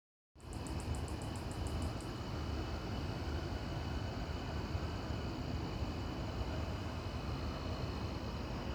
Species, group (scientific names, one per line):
Microcentrum rhombifolium
Orthoptera